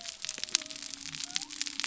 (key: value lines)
label: biophony
recorder: SoundTrap 300